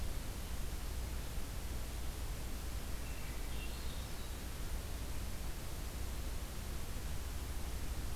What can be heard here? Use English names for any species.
Swainson's Thrush